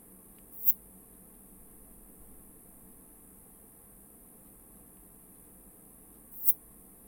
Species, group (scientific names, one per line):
Poecilimon affinis
Orthoptera